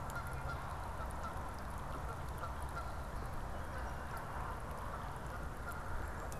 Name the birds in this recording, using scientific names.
Branta canadensis, Melospiza melodia